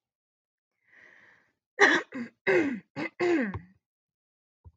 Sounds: Throat clearing